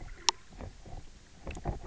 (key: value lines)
label: biophony, knock croak
recorder: SoundTrap 300